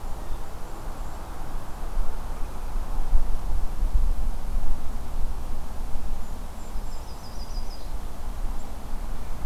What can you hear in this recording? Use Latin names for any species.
Regulus satrapa, Setophaga coronata